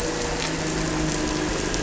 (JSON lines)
{"label": "anthrophony, boat engine", "recorder": "SoundTrap 300"}